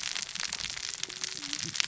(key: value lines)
label: biophony, cascading saw
recorder: SoundTrap 600 or HydroMoth